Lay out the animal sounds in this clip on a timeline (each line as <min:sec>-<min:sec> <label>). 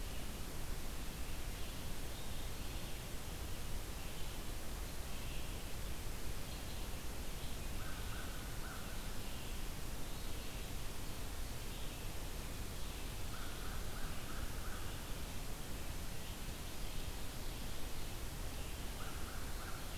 0:00.0-0:03.4 Red-eyed Vireo (Vireo olivaceus)
0:03.9-0:17.6 Red-eyed Vireo (Vireo olivaceus)
0:07.7-0:09.0 American Crow (Corvus brachyrhynchos)
0:13.2-0:14.9 American Crow (Corvus brachyrhynchos)
0:16.2-0:20.0 Ovenbird (Seiurus aurocapilla)
0:18.9-0:19.9 American Crow (Corvus brachyrhynchos)